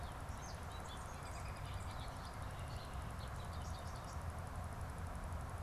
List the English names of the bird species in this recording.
Bobolink, American Robin